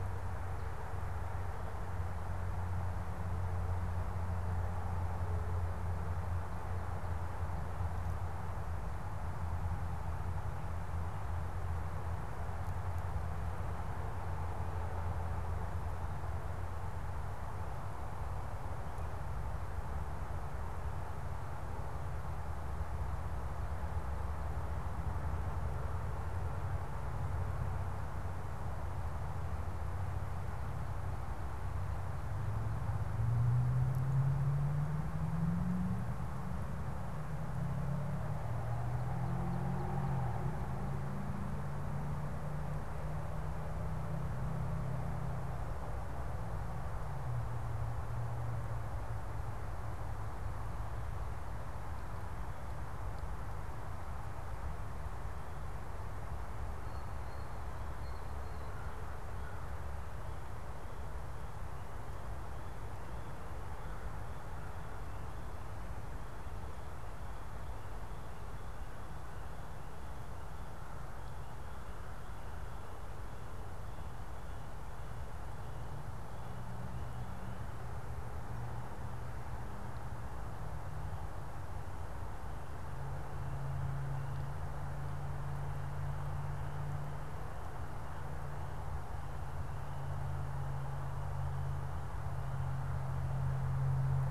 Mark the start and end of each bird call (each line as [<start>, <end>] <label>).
[56.83, 58.43] Blue Jay (Cyanocitta cristata)
[58.63, 59.73] American Crow (Corvus brachyrhynchos)